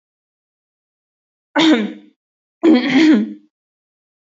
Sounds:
Throat clearing